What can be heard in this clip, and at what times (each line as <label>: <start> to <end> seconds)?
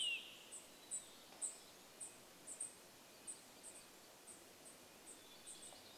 Olive-sided Flycatcher song: 0 to 2 seconds
Red-breasted Nuthatch song: 0 to 6 seconds
unidentified bird chip note: 0 to 6 seconds
warbler song: 2 to 6 seconds
Hermit Thrush song: 4 to 6 seconds